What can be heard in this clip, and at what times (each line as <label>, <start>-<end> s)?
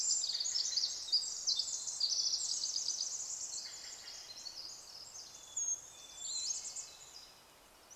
Steller's Jay call, 0-6 s
Pacific Wren song, 0-8 s
Red-breasted Nuthatch song, 2-4 s
Brown Creeper call, 4-6 s
unidentified sound, 4-6 s
Hermit Thrush song, 4-8 s
Pacific-slope Flycatcher call, 6-8 s
Red-breasted Nuthatch song, 6-8 s